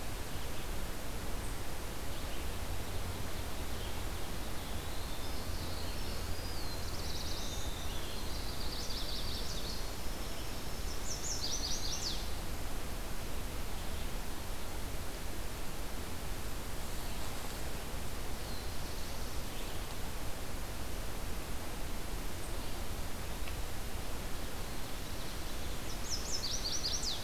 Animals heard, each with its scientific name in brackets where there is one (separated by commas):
Chestnut-sided Warbler (Setophaga pensylvanica), Eastern Wood-Pewee (Contopus virens), Winter Wren (Troglodytes hiemalis), Ovenbird (Seiurus aurocapilla), Black-throated Blue Warbler (Setophaga caerulescens)